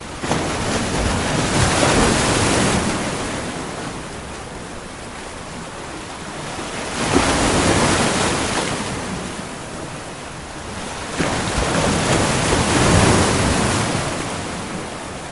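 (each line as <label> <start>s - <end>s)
Water waves with moderately strong winds rise and fall in a steady rhythm. 0.2s - 4.0s
Water waves with moderately strong winds rise and fall in a steady rhythm. 6.8s - 9.6s
Water waves with moderately strong winds rise and fall in a steady rhythm. 11.1s - 14.7s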